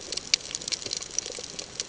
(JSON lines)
{"label": "ambient", "recorder": "HydroMoth"}